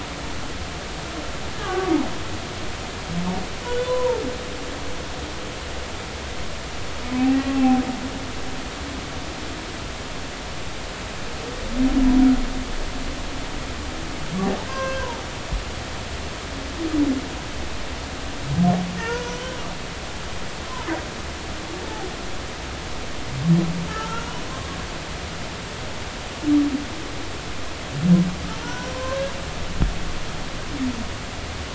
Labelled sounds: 1.5	1.9	humpback whale, 1.1 to 1.8 kHz
3.6	4.2	humpback whale, 0.86 to 3.6 kHz
7.2	7.8	humpback whale, 0.80 to 2.8 kHz
14.6	15.1	humpback whale, 0.99 to 2.7 kHz
19.0	19.6	humpback whale, 0.86 to 6.0 kHz
23.9	24.3	humpback whale, 0.86 to 1.5 kHz
28.6	29.3	humpback whale, 0.90 to 1.7 kHz

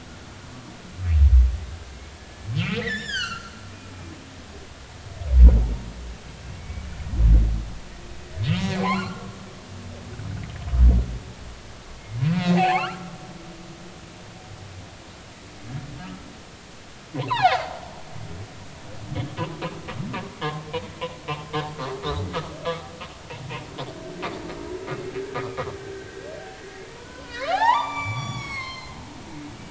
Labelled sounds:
2.6	3.5	humpback whale, 1.2 to 7.4 kHz
3.9	4.5	humpback whale, 2.6 to 3.9 kHz
6.6	6.8	humpback whale, 2.2 to 2.3 kHz
8.0	8.3	humpback whale, 2.5 to 2.6 kHz
8.7	9.4	humpback whale, 0.80 to 2.5 kHz
9.9	10.1	humpback whale, 4.0 to 4.4 kHz
12.3	13.0	humpback whale, 0.80 to 3.0 kHz
16.0	16.3	humpback whale, 1.2 to 1.4 kHz
17.1	17.6	humpback whale, 0.80 to 3.0 kHz
25.7	29.0	humpback whale, 0.80 to 8.0 kHz

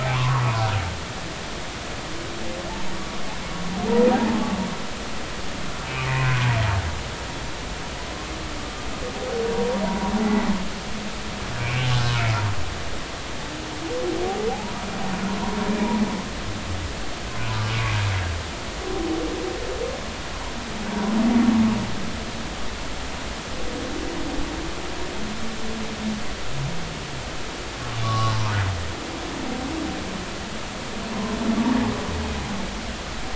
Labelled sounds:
0.0	0.4	humpback whale, 0.80 to 1.2 kHz
4.1	4.6	humpback whale, 0.80 to 0.99 kHz
6.1	6.6	humpback whale, 0.93 to 1.1 kHz
9.5	9.8	humpback whale, 0.90 to 0.99 kHz
11.6	11.9	humpback whale, 2.2 to 2.7 kHz
14.5	14.7	humpback whale, 0.80 to 0.99 kHz
28.0	28.4	humpback whale, 0.99 to 1.2 kHz

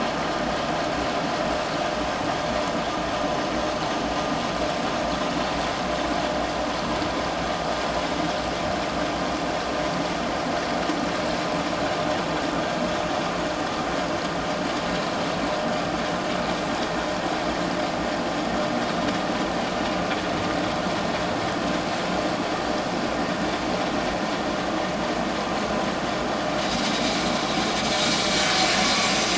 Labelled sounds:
26.6	26.9	vessel noise, 3.8 to 3.9 kHz

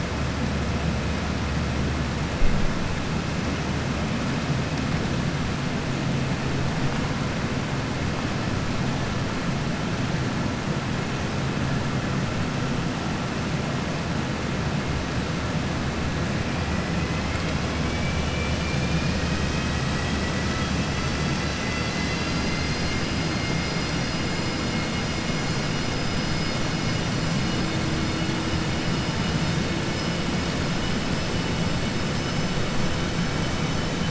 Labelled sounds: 31.9	32.6	vessel noise, 4.5 to 6.7 kHz

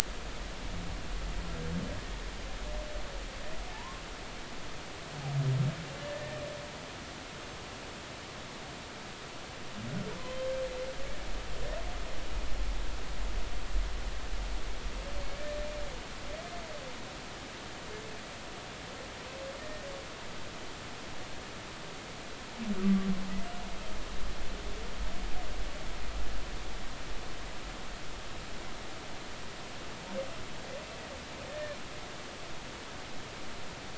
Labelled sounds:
3.7	4.0	humpback whale, 0.83 to 1.1 kHz
6.0	6.4	humpback whale, 1.7 to 1.9 kHz
10.2	10.5	humpback whale, 3.0 to 3.2 kHz
19.6	19.8	humpback whale, 1.8 to 1.9 kHz
22.8	23.1	humpback whale, 1.1 to 1.2 kHz
31.5	31.8	humpback whale, 1.7 to 1.9 kHz

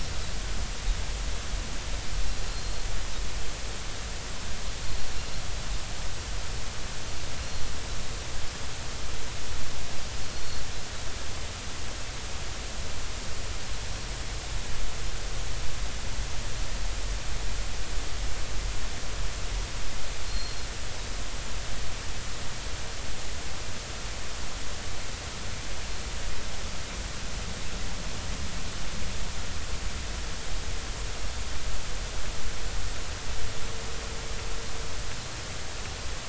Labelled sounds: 2.5	2.8	Pacific white-sided dolphin, 4.1 to 4.4 kHz
10.3	10.6	Pacific white-sided dolphin, 4.2 to 4.5 kHz
20.3	20.6	Pacific white-sided dolphin, 4.1 to 4.4 kHz

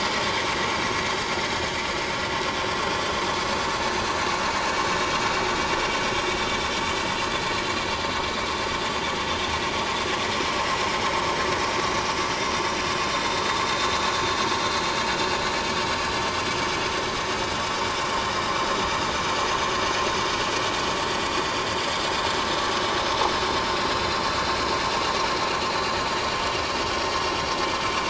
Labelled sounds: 0.2	0.5	vessel noise, 6.3 to 6.4 kHz
4.8	5.1	vessel noise, 3.7 to 3.9 kHz
8.2	8.5	vessel noise, 3.8 to 3.9 kHz
16.5	16.7	vessel noise, 6.2 to 6.4 kHz

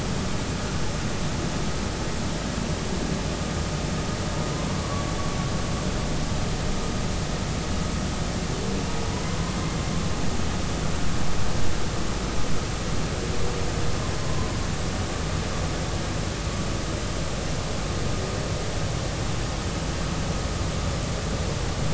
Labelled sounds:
4.7	5.1	humpback whale, 0.99 to 1.2 kHz
9.2	9.5	humpback whale, 0.99 to 1.1 kHz

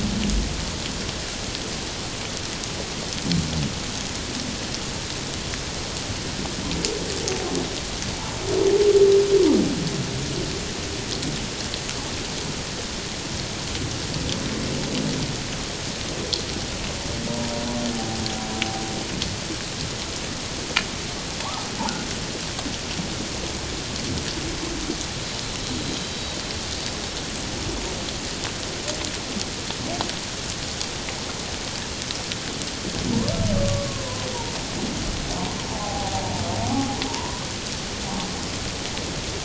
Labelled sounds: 17.9	18.2	humpback whale, 0.78 to 0.88 kHz
26.0	26.4	humpback whale, 3.8 to 4.7 kHz
33.9	34.3	humpback whale, 0.94 to 1.1 kHz
35.7	36.2	humpback whale, 0.78 to 0.91 kHz
37.1	37.3	humpback whale, 0.88 to 1.1 kHz

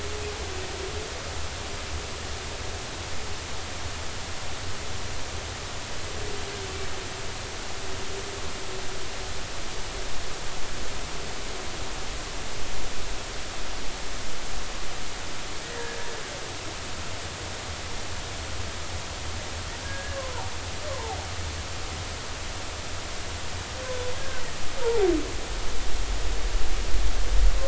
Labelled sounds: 15.6	16.0	humpback whale, 1.6 to 2.0 kHz
19.8	21.2	humpback whale, 0.80 to 1.7 kHz
24.2	24.4	humpback whale, 1.5 to 1.8 kHz
24.8	25.1	humpback whale, 0.80 to 0.99 kHz

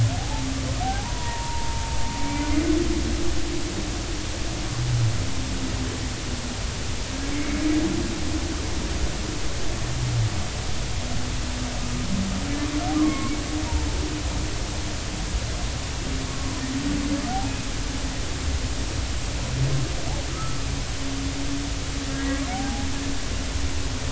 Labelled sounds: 0.2	0.5	humpback whale, 0.80 to 0.93 kHz
0.8	2.5	humpback whale, 0.80 to 2.4 kHz
7.3	7.6	humpback whale, 2.1 to 2.3 kHz
13.0	13.3	humpback whale, 0.99 to 2.2 kHz
16.3	16.6	humpback whale, 0.99 to 1.2 kHz
20.3	20.6	humpback whale, 1.1 to 1.4 kHz
22.5	22.9	humpback whale, 0.80 to 0.86 kHz

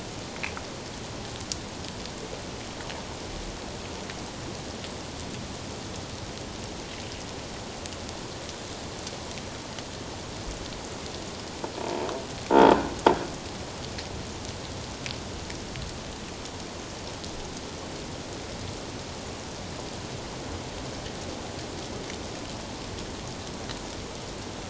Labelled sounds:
11.8	12.1	croaking sound likely from a nearby submerged object, 0.84 to 1.0 kHz

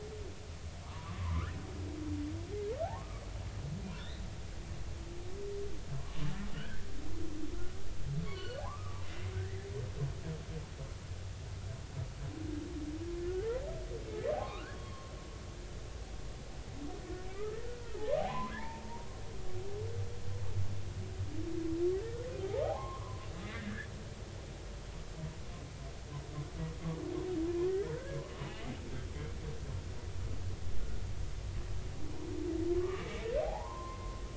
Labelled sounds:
0.8	1.5	humpback whale, 0.90 to 1.5 kHz
3.0	3.2	humpback whale, 1.0 to 1.3 kHz
4.0	4.2	humpback whale, 3.3 to 4.2 kHz
6.1	6.9	humpback whale, 1.4 to 2.9 kHz
8.3	9.7	humpback whale, 0.80 to 4.6 kHz
14.3	15.1	humpback whale, 0.80 to 3.3 kHz
17.3	19.1	humpback whale, 0.80 to 1.3 kHz
22.6	23.9	humpback whale, 0.80 to 2.1 kHz
27.7	28.2	humpback whale, 1.4 to 1.9 kHz
32.7	34.2	humpback whale, 0.80 to 1.2 kHz

